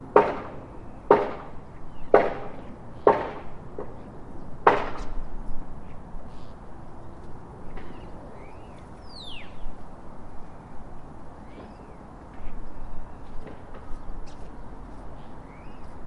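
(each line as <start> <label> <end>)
0.0 Rapid hammering on wood in the background. 0.3
0.0 A muffled sound of moving transport in the background. 16.1
0.1 An echo follows a hammer striking a wooden surface. 0.6
1.0 Rapid hammering on wood in the background. 1.3
1.2 An echo follows a hammer striking a wooden surface. 1.6
1.6 Birds are quietly singing in the background and fading away at the end. 16.1
2.0 Rapid hammering on wood in the background. 2.4
2.2 An echo follows a hammer striking a wooden surface. 3.5
3.0 Rapid hammering on wood in the background. 3.3
4.6 Rapid hammering on wood in the background. 5.2
4.9 An echo follows a hammer striking a wooden surface. 5.3
7.6 Working sounds at a building site, muffled and quiet. 8.0
11.4 Working sounds at a building site, muffled and quiet. 11.9
13.3 Working sounds at a building site, muffled and quiet. 13.9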